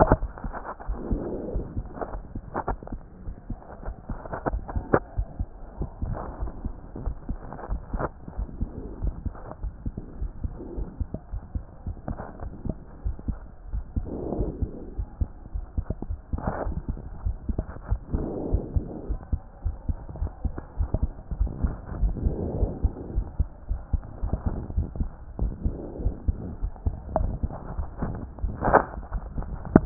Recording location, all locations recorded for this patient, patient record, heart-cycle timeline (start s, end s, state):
aortic valve (AV)
aortic valve (AV)+pulmonary valve (PV)+tricuspid valve (TV)+mitral valve (MV)
#Age: Child
#Sex: Male
#Height: 125.0 cm
#Weight: 25.4 kg
#Pregnancy status: False
#Murmur: Absent
#Murmur locations: nan
#Most audible location: nan
#Systolic murmur timing: nan
#Systolic murmur shape: nan
#Systolic murmur grading: nan
#Systolic murmur pitch: nan
#Systolic murmur quality: nan
#Diastolic murmur timing: nan
#Diastolic murmur shape: nan
#Diastolic murmur grading: nan
#Diastolic murmur pitch: nan
#Diastolic murmur quality: nan
#Outcome: Abnormal
#Campaign: 2014 screening campaign
0.00	1.66	unannotated
1.66	1.78	systole
1.78	1.86	S2
1.86	2.12	diastole
2.12	2.22	S1
2.22	2.32	systole
2.32	2.42	S2
2.42	2.68	diastole
2.68	2.78	S1
2.78	2.92	systole
2.92	3.00	S2
3.00	3.28	diastole
3.28	3.36	S1
3.36	3.50	systole
3.50	3.56	S2
3.56	3.86	diastole
3.86	3.96	S1
3.96	4.10	systole
4.10	4.18	S2
4.18	4.46	diastole
4.46	4.64	S1
4.64	4.74	systole
4.74	4.86	S2
4.86	5.16	diastole
5.16	5.26	S1
5.26	5.38	systole
5.38	5.48	S2
5.48	5.78	diastole
5.78	5.88	S1
5.88	6.02	systole
6.02	6.16	S2
6.16	6.40	diastole
6.40	6.52	S1
6.52	6.64	systole
6.64	6.74	S2
6.74	7.04	diastole
7.04	7.18	S1
7.18	7.28	systole
7.28	7.38	S2
7.38	7.70	diastole
7.70	7.82	S1
7.82	7.94	systole
7.94	8.10	S2
8.10	8.38	diastole
8.38	8.50	S1
8.50	8.60	systole
8.60	8.72	S2
8.72	9.02	diastole
9.02	9.14	S1
9.14	9.24	systole
9.24	9.34	S2
9.34	9.64	diastole
9.64	9.74	S1
9.74	9.84	systole
9.84	9.94	S2
9.94	10.20	diastole
10.20	10.32	S1
10.32	10.40	systole
10.40	10.52	S2
10.52	10.76	diastole
10.76	10.88	S1
10.88	10.96	systole
10.96	11.08	S2
11.08	11.34	diastole
11.34	11.44	S1
11.44	11.54	systole
11.54	11.62	S2
11.62	11.88	diastole
11.88	11.96	S1
11.96	12.08	systole
12.08	12.18	S2
12.18	12.44	diastole
12.44	12.54	S1
12.54	12.64	systole
12.64	12.74	S2
12.74	13.04	diastole
13.04	13.16	S1
13.16	13.26	systole
13.26	13.40	S2
13.40	13.72	diastole
13.72	13.84	S1
13.84	13.94	systole
13.94	14.08	S2
14.08	14.32	diastole
14.32	14.50	S1
14.50	14.60	systole
14.60	14.70	S2
14.70	14.96	diastole
14.96	15.08	S1
15.08	15.20	systole
15.20	15.30	S2
15.30	15.54	diastole
15.54	15.64	S1
15.64	15.74	systole
15.74	15.86	S2
15.86	16.08	diastole
16.08	16.20	S1
16.20	16.32	systole
16.32	16.40	S2
16.40	16.66	diastole
16.66	16.78	S1
16.78	16.88	systole
16.88	17.00	S2
17.00	17.24	diastole
17.24	17.38	S1
17.38	17.46	systole
17.46	17.56	S2
17.56	17.86	diastole
17.86	18.00	S1
18.00	18.12	systole
18.12	18.26	S2
18.26	18.50	diastole
18.50	18.66	S1
18.66	18.72	systole
18.72	18.84	S2
18.84	19.08	diastole
19.08	19.20	S1
19.20	19.28	systole
19.28	19.40	S2
19.40	19.64	diastole
19.64	19.78	S1
19.78	19.88	systole
19.88	19.98	S2
19.98	20.20	diastole
20.20	20.32	S1
20.32	20.44	systole
20.44	20.54	S2
20.54	20.78	diastole
20.78	20.92	S1
20.92	21.00	systole
21.00	21.12	S2
21.12	21.38	diastole
21.38	21.52	S1
21.52	21.62	systole
21.62	21.76	S2
21.76	22.00	diastole
22.00	22.18	S1
22.18	22.24	systole
22.24	22.38	S2
22.38	22.60	diastole
22.60	22.74	S1
22.74	22.78	systole
22.78	22.92	S2
22.92	23.14	diastole
23.14	23.28	S1
23.28	23.36	systole
23.36	23.48	S2
23.48	23.70	diastole
23.70	23.82	S1
23.82	23.90	systole
23.90	24.00	S2
24.00	24.22	diastole
24.22	24.34	S1
24.34	24.44	systole
24.44	24.54	S2
24.54	24.76	diastole
24.76	24.90	S1
24.90	24.98	systole
24.98	25.12	S2
25.12	25.40	diastole
25.40	25.56	S1
25.56	25.64	systole
25.64	25.78	S2
25.78	26.00	diastole
26.00	26.14	S1
26.14	26.26	systole
26.26	26.40	S2
26.40	26.62	diastole
26.62	26.74	S1
26.74	26.82	systole
26.82	26.96	S2
26.96	27.18	diastole
27.18	27.36	S1
27.36	27.42	systole
27.42	27.52	S2
27.52	27.76	diastole
27.76	27.90	S1
27.90	28.00	systole
28.00	28.14	S2
28.14	29.86	unannotated